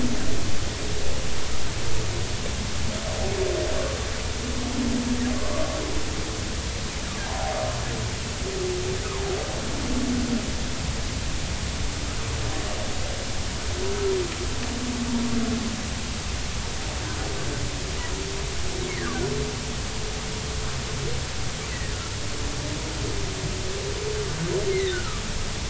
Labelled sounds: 7.2	7.6	humpback whale, 0.80 to 1.1 kHz
24.7	25.2	humpback whale, 1.1 to 2.2 kHz

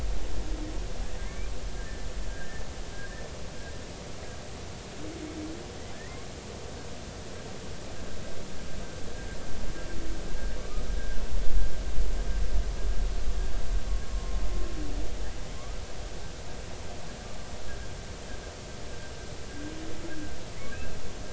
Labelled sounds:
1.2	1.5	humpback whale, 1.9 to 2.5 kHz
5.9	6.3	humpback whale, 1.6 to 2.3 kHz
14.1	14.4	humpback whale, 0.93 to 1.1 kHz
19.5	19.7	humpback whale, 1.6 to 1.7 kHz
20.7	21.0	humpback whale, 2.4 to 2.7 kHz

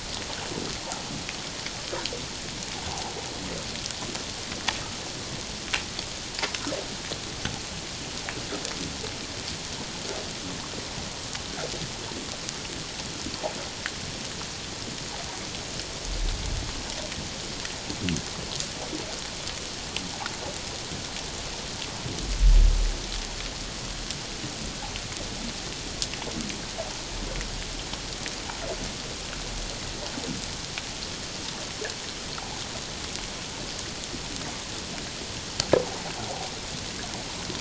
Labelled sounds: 2.9	3.1	humpback whale, 0.78 to 1.0 kHz

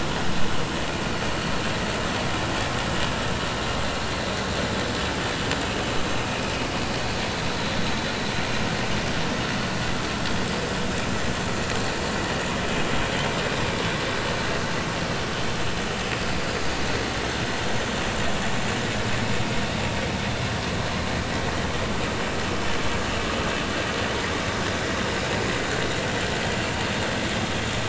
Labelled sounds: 1.0	1.4	vessel noise, 4.3 to 4.6 kHz

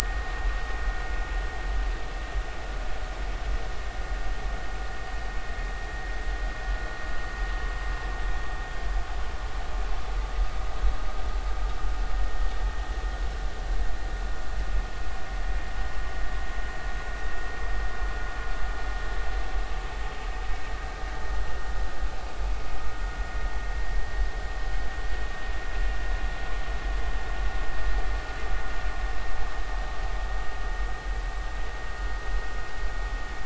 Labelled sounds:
0.0	0.8	vessel noise, 1.4 to 1.9 kHz
12.1	12.5	vessel noise, 1.8 to 1.9 kHz

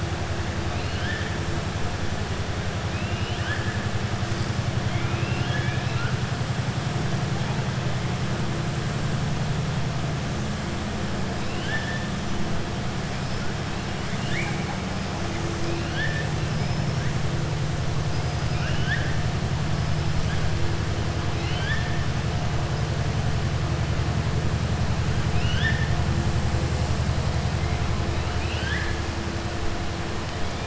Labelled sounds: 0.7	1.3	killer whale, southern resident, 1.5 to 4.4 kHz
2.9	3.8	killer whale, southern resident, 1.3 to 3.5 kHz
4.8	6.1	killer whale, southern resident, 1.3 to 4.2 kHz
11.4	12.1	killer whale, southern resident, 1.5 to 3.6 kHz
14.0	14.7	killer whale, southern resident, 1.4 to 4.3 kHz
15.6	16.3	killer whale, southern resident, 1.5 to 4.5 kHz
18.0	19.1	killer whale, southern resident, 1.4 to 5.2 kHz
21.3	21.9	killer whale, southern resident, 1.4 to 4.7 kHz
25.3	25.9	killer whale, southern resident, 1.5 to 6.2 kHz
28.3	29.0	killer whale, southern resident, 1.5 to 5.3 kHz

